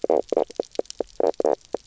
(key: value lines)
label: biophony, knock croak
recorder: SoundTrap 300